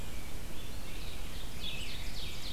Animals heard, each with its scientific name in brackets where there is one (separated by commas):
Red-eyed Vireo (Vireo olivaceus), Ovenbird (Seiurus aurocapilla), Rose-breasted Grosbeak (Pheucticus ludovicianus)